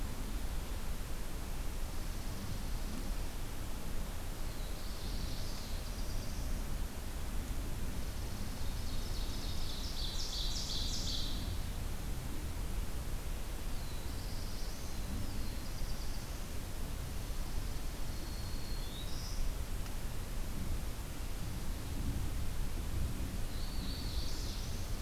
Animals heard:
Chipping Sparrow (Spizella passerina), Black-throated Blue Warbler (Setophaga caerulescens), Hooded Warbler (Setophaga citrina), Black-throated Green Warbler (Setophaga virens), Ovenbird (Seiurus aurocapilla)

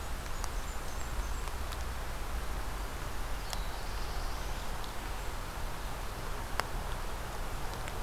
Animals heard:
Black-throated Blue Warbler (Setophaga caerulescens), Blackburnian Warbler (Setophaga fusca)

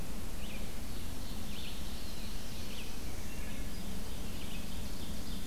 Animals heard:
Ovenbird (Seiurus aurocapilla), Black-throated Blue Warbler (Setophaga caerulescens), Red-eyed Vireo (Vireo olivaceus)

